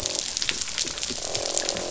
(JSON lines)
{"label": "biophony, croak", "recorder": "SoundTrap 500"}